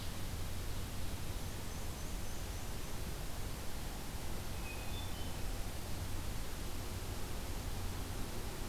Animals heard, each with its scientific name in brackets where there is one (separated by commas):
Hermit Thrush (Catharus guttatus), Black-and-white Warbler (Mniotilta varia)